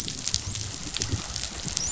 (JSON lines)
{"label": "biophony, dolphin", "recorder": "SoundTrap 500"}